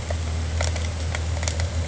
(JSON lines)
{"label": "anthrophony, boat engine", "recorder": "HydroMoth"}